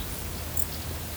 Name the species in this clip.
Pholidoptera femorata